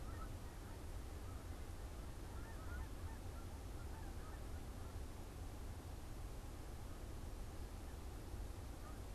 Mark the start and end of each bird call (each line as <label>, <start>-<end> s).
Canada Goose (Branta canadensis), 0.0-9.1 s